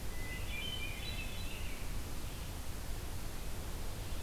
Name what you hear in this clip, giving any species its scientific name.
Catharus guttatus